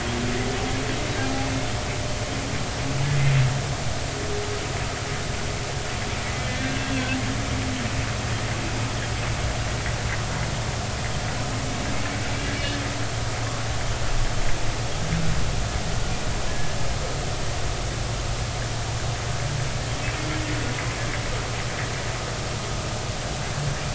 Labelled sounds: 6.4	6.7	humpback whale, 1.7 to 1.9 kHz
16.5	16.8	humpback whale, 1.6 to 1.9 kHz

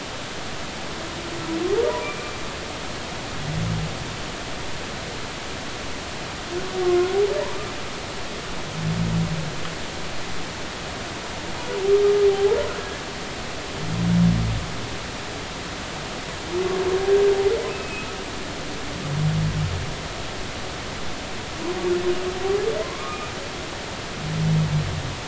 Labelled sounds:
2.0	2.3	humpback whale, 2.3 to 2.4 kHz
6.8	7.1	humpback whale, 1.0 to 1.1 kHz
12.3	13.0	humpback whale, 0.80 to 1.8 kHz
17.7	18.1	humpback whale, 2.4 to 2.7 kHz
22.8	23.2	humpback whale, 0.96 to 1.3 kHz

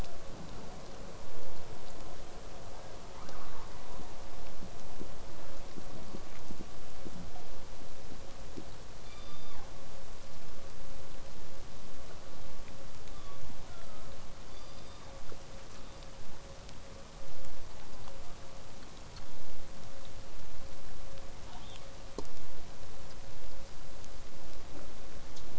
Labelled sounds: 2.7	4.2	killer whale, southern resident, call S10, 0.23 to 7.1 kHz
9.0	9.7	killer whale, southern resident, call S16, 0.43 to 8.0 kHz
13.1	14.2	killer whale, southern resident, 0.97 to 5.1 kHz
14.5	15.1	killer whale, southern resident, call S16, 2.1 to 6.1 kHz
15.7	16.4	killer whale, southern resident, call S16, 3.3 to 5.1 kHz
21.4	21.8	killer whale, southern resident, L pod, call S33, 0.50 to 4.3 kHz

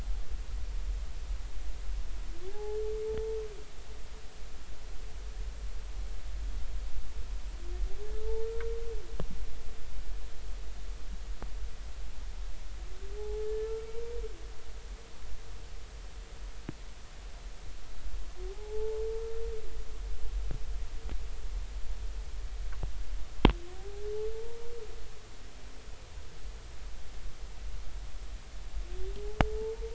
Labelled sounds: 2.4	2.8	humpback whale, 0.80 to 0.93 kHz
8.2	8.5	humpback whale, 0.83 to 0.93 kHz
13.2	13.7	humpback whale, 0.80 to 1.8 kHz
18.5	19.0	humpback whale, 0.80 to 0.93 kHz
23.7	24.6	humpback whale, 0.80 to 0.99 kHz
29.5	29.9	humpback whale, 0.83 to 0.96 kHz

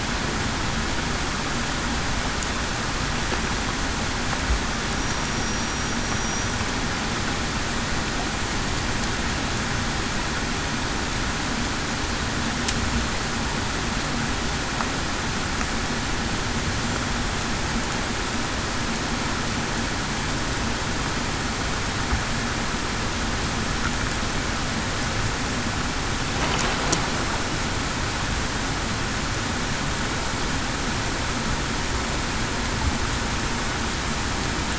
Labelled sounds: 5.3	5.7	killer whale, Bigg's (transient), 5.67 to 5.72 kHz
6.2	6.5	killer whale, Bigg's (transient), 5.7 to 5.9 kHz

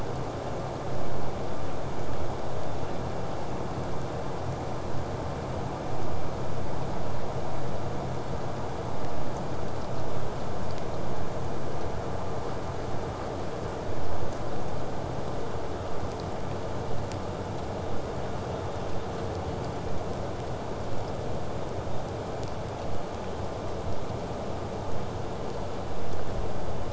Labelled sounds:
15.9	20.9	vessel noise, 0 to 8.0 kHz

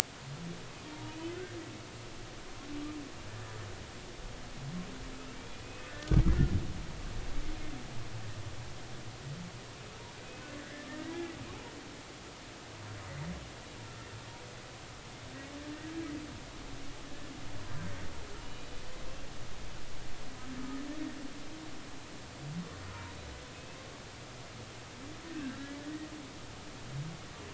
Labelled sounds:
0.9	1.4	humpback whale, 0.90 to 3.1 kHz
5.3	6.1	humpback whale, 1.7 to 2.7 kHz
11.0	11.3	humpback whale, 1.5 to 1.8 kHz
18.5	18.7	humpback whale, 3.9 to 4.0 kHz
25.3	26.1	humpback whale, 1.5 to 2.0 kHz

